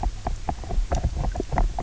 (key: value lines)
label: biophony, knock croak
recorder: SoundTrap 300